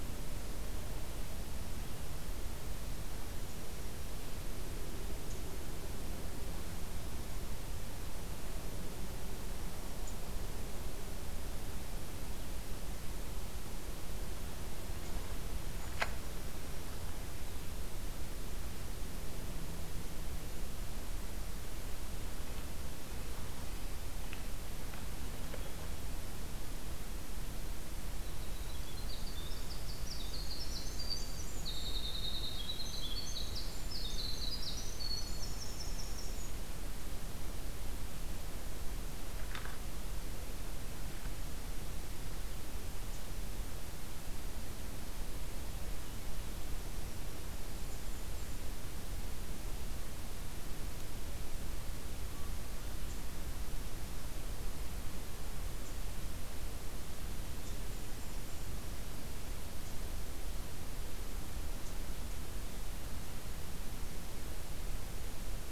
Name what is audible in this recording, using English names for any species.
Winter Wren, Golden-crowned Kinglet